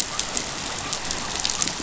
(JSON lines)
{"label": "biophony", "recorder": "SoundTrap 500"}